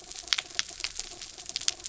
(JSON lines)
{"label": "anthrophony, mechanical", "recorder": "SoundTrap 300"}